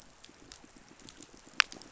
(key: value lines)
label: biophony, pulse
recorder: SoundTrap 500